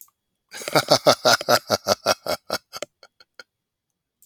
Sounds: Laughter